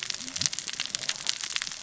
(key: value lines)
label: biophony, cascading saw
recorder: SoundTrap 600 or HydroMoth